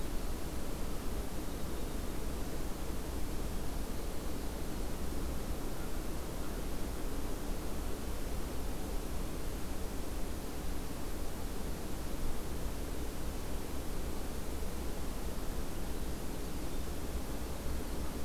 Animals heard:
forest ambience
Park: Acadia National Park